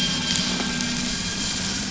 {"label": "anthrophony, boat engine", "recorder": "SoundTrap 500"}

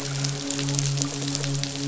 {"label": "biophony, midshipman", "recorder": "SoundTrap 500"}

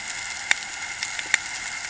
{"label": "anthrophony, boat engine", "recorder": "HydroMoth"}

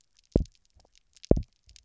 {"label": "biophony, double pulse", "recorder": "SoundTrap 300"}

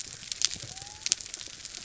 {"label": "biophony", "recorder": "SoundTrap 300"}
{"label": "anthrophony, mechanical", "recorder": "SoundTrap 300"}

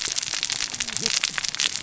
{"label": "biophony, cascading saw", "recorder": "SoundTrap 600 or HydroMoth"}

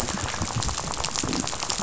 {"label": "biophony, rattle", "recorder": "SoundTrap 500"}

